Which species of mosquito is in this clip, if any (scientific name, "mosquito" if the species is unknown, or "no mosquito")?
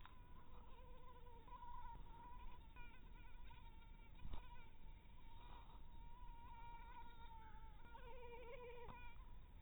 mosquito